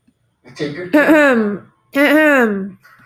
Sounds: Throat clearing